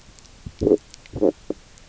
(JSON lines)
{"label": "biophony, stridulation", "recorder": "SoundTrap 300"}